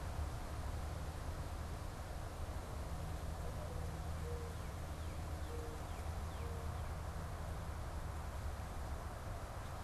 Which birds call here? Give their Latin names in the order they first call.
Zenaida macroura, Cardinalis cardinalis